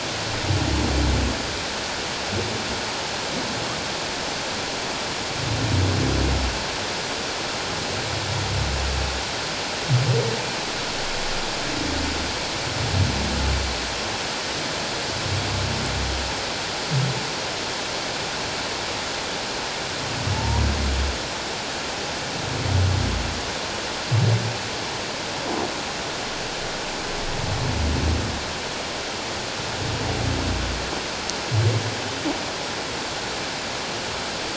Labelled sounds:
20.3	20.6	humpback whale, 0.81 to 1.0 kHz

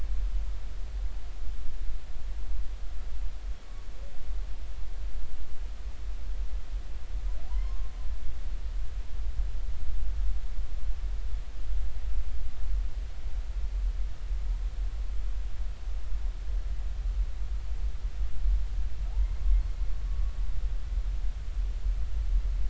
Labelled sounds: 7.5	7.9	humpback whale, 0.90 to 1.1 kHz
19.1	19.4	humpback whale, 0.80 to 1.1 kHz
20.1	20.3	humpback whale, 1.1 to 1.2 kHz

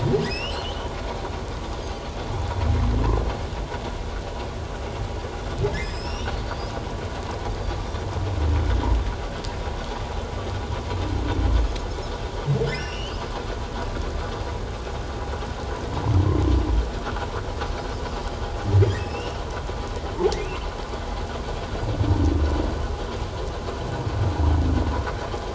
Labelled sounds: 0.2	0.9	humpback whale, 2.4 to 5.8 kHz
5.8	6.7	humpback whale, 2.5 to 7.9 kHz
12.6	13.2	humpback whale, 2.6 to 5.9 kHz
19.0	19.4	humpback whale, 2.5 to 3.1 kHz

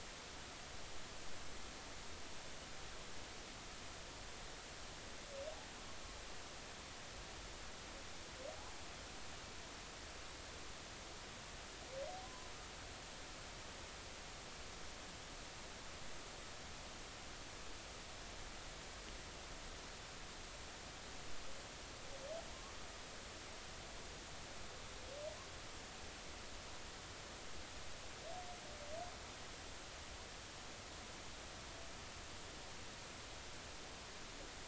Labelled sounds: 12.2	12.5	humpback whale, 0.96 to 1.1 kHz

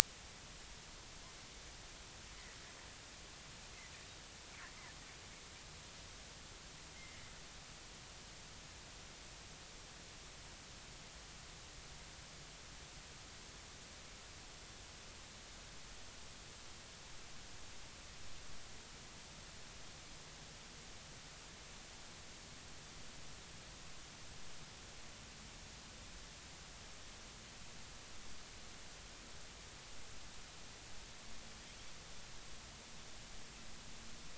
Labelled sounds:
7.0	7.2	Pacific white-sided dolphin, 2.0 to 2.2 kHz

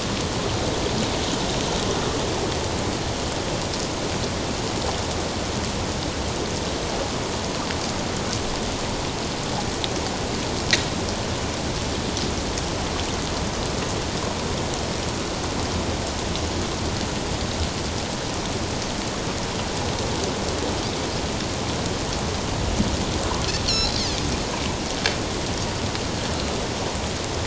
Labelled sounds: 23.7	23.9	Pacific white-sided dolphin, 3.9 to 4.5 kHz

